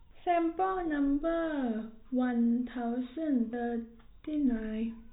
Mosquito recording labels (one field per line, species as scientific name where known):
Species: no mosquito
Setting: cup